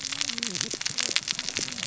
{"label": "biophony, cascading saw", "recorder": "SoundTrap 600 or HydroMoth"}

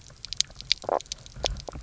{"label": "biophony, knock croak", "recorder": "SoundTrap 300"}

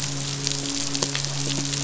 {"label": "biophony, midshipman", "recorder": "SoundTrap 500"}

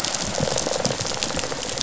{"label": "biophony, rattle response", "recorder": "SoundTrap 500"}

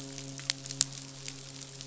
{"label": "biophony, midshipman", "recorder": "SoundTrap 500"}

